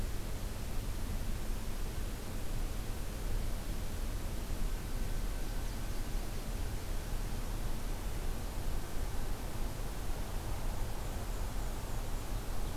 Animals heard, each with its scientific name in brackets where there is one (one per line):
Black-and-white Warbler (Mniotilta varia)